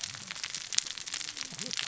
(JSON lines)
{"label": "biophony, cascading saw", "recorder": "SoundTrap 600 or HydroMoth"}